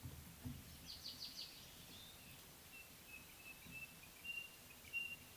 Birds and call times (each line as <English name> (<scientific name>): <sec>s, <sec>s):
African Pied Wagtail (Motacilla aguimp): 1.2s